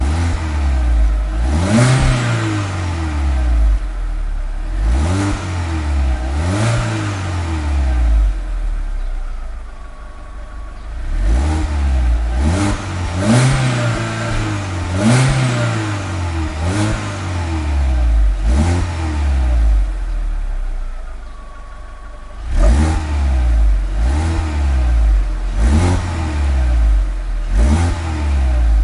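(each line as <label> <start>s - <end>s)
An internal combustion engine of a personal vehicle revs repeatedly. 0.0s - 3.0s
The engine of a personal vehicle decelerates, causing a decreasing metallic whirring sound. 2.7s - 3.9s
An internal combustion engine idling. 3.4s - 4.9s
An internal combustion engine of a personal vehicle revs repeatedly. 4.8s - 8.4s
The engine of a personal vehicle decelerates, causing a decreasing metallic whirring sound. 8.4s - 9.7s
An internal combustion engine idles steadily. 8.4s - 11.0s
An internal combustion engine revving repeatedly. 11.1s - 20.1s
The engine of a personal vehicle decelerates, causing a decreasing metallic whirring sound. 17.4s - 20.1s
An internal combustion engine idles steadily. 20.0s - 22.5s
An internal combustion engine of a personal vehicle revving repeatedly. 22.5s - 28.8s
The engine of a personal vehicle decelerates, causing a decreasing metallic whirring sound. 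23.1s - 23.9s
The engine of a personal vehicle decelerates, causing a decreasing metallic whirring sound. 24.6s - 25.4s
The engine of a personal vehicle decelerates, causing a decreasing metallic whirring sound. 26.1s - 27.1s
The engine of a personal vehicle decelerates, causing a decreasing metallic whirring sound. 28.0s - 28.8s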